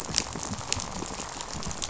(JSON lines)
{"label": "biophony, rattle", "recorder": "SoundTrap 500"}